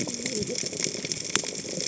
{"label": "biophony, cascading saw", "recorder": "HydroMoth"}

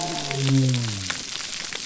{"label": "biophony", "recorder": "SoundTrap 300"}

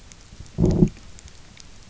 {"label": "biophony, low growl", "recorder": "SoundTrap 300"}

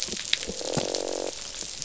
{"label": "biophony, croak", "recorder": "SoundTrap 500"}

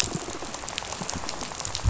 {"label": "biophony, rattle", "recorder": "SoundTrap 500"}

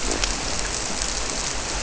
{"label": "biophony", "recorder": "SoundTrap 300"}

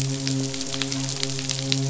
{"label": "biophony, midshipman", "recorder": "SoundTrap 500"}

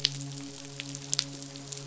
{"label": "biophony, midshipman", "recorder": "SoundTrap 500"}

